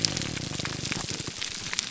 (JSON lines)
{"label": "biophony", "recorder": "SoundTrap 300"}